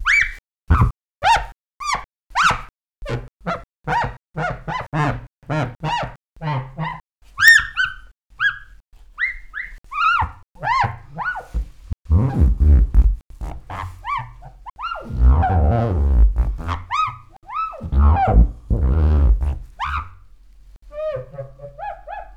Does the sound vary in pitch?
yes